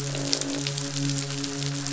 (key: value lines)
label: biophony, midshipman
recorder: SoundTrap 500

label: biophony, croak
recorder: SoundTrap 500